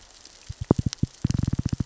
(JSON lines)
{"label": "biophony, knock", "recorder": "SoundTrap 600 or HydroMoth"}